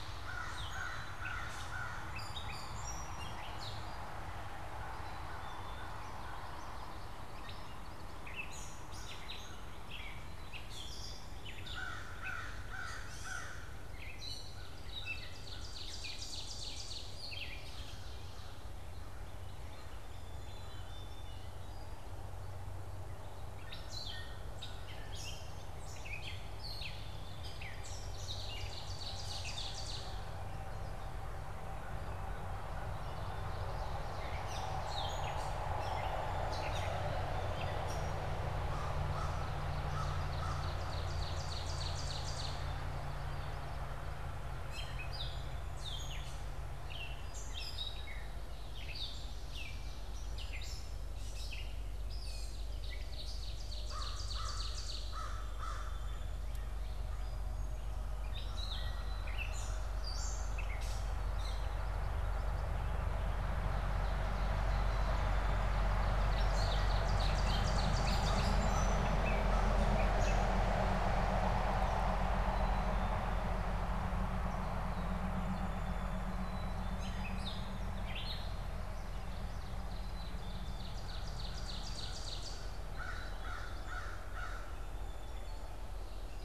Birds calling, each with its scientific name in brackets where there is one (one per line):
Black-capped Chickadee (Poecile atricapillus)
Ovenbird (Seiurus aurocapilla)
Gray Catbird (Dumetella carolinensis)
Song Sparrow (Melospiza melodia)
Common Yellowthroat (Geothlypis trichas)
American Crow (Corvus brachyrhynchos)